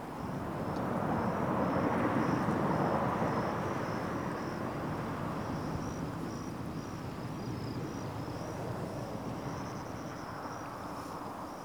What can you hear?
Natula averni, an orthopteran